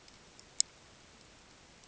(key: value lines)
label: ambient
recorder: HydroMoth